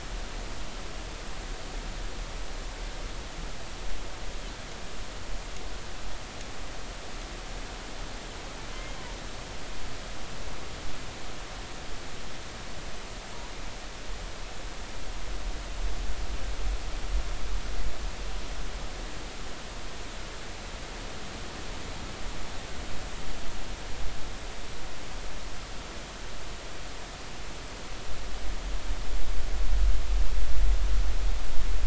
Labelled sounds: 8.7	9.0	humpback whale, 2.0 to 2.2 kHz

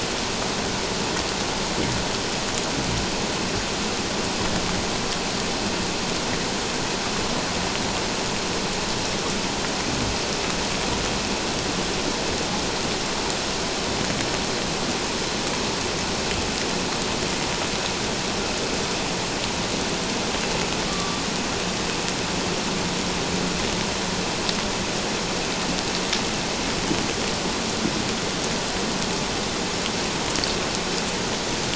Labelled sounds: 20.9	21.2	killer whale, 1.1 to 1.2 kHz

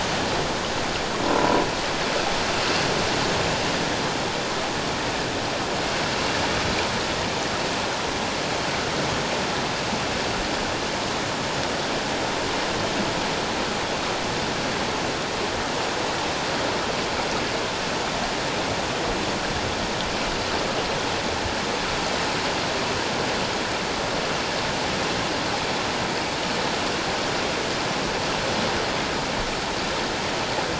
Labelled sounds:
1.2	1.6	croaking sound likely from a nearby submerged object, 0.94 to 1.0 kHz

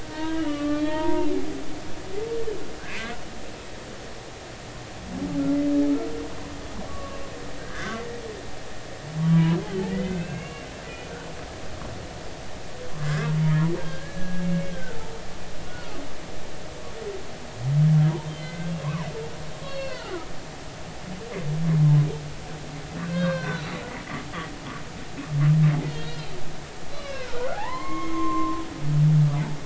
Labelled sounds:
0.0	1.3	humpback whale, 0.86 to 3.2 kHz
2.9	3.2	humpback whale, 2.0 to 2.2 kHz
6.9	8.0	humpback whale, 1.1 to 1.8 kHz
9.2	9.6	humpback whale, 0.93 to 1.1 kHz
9.9	11.1	humpback whale, 1.4 to 2.8 kHz
13.0	13.3	humpback whale, 2.0 to 2.2 kHz
13.8	15.0	humpback whale, 1.3 to 1.8 kHz
15.7	16.0	humpback whale, 1.1 to 1.5 kHz
18.3	18.7	humpback whale, 1.5 to 3.2 kHz
19.6	20.3	humpback whale, 0.93 to 4.4 kHz
23.0	23.8	humpback whale, 0.96 to 5.8 kHz
25.9	28.6	humpback whale, 0.80 to 4.4 kHz

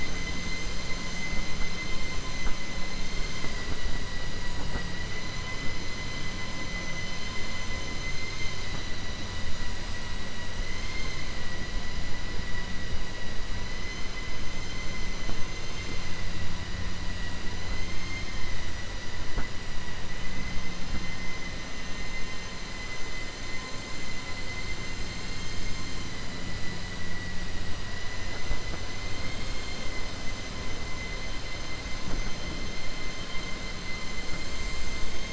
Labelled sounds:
7.7	8.6	vessel noise, 1.4 to 6.6 kHz
17.8	18.4	vessel noise, 2.1 to 4.2 kHz

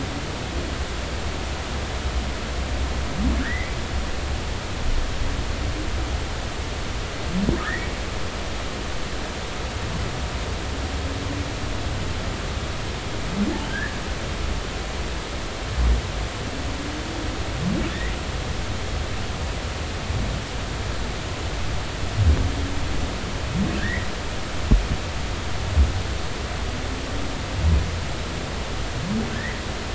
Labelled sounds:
3.4	3.7	humpback whale, 1.3 to 2.1 kHz
7.6	7.9	humpback whale, 1.6 to 2.0 kHz
13.7	14.0	humpback whale, 1.5 to 1.9 kHz
23.8	24.1	humpback whale, 1.5 to 2.3 kHz
29.3	29.6	humpback whale, 1.7 to 2.1 kHz

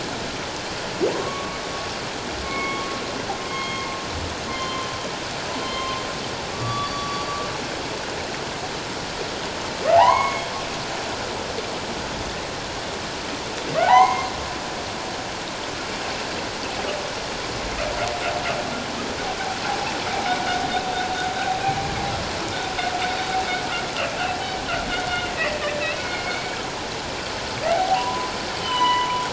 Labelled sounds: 1.1	1.6	humpback whale, 0.94 to 1.2 kHz
2.4	2.9	humpback whale, 1.0 to 2.3 kHz
3.5	3.9	humpback whale, 2.1 to 3.3 kHz
4.5	4.9	humpback whale, 1.0 to 4.3 kHz
5.6	7.3	humpback whale, 1.1 to 3.5 kHz
9.9	10.5	humpback whale, 0.78 to 6.7 kHz
13.8	14.3	humpback whale, 0.78 to 6.5 kHz
25.4	26.6	humpback whale, 2.1 to 4.4 kHz
27.7	29.3	humpback whale, 0.78 to 4.0 kHz

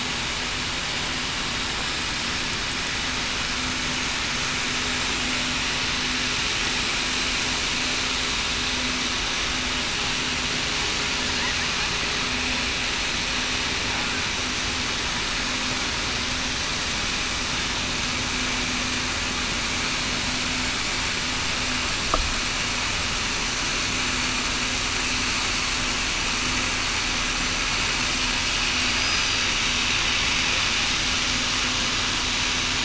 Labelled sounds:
29.0	29.4	killer whale, southern resident, 4.7 to 5.0 kHz

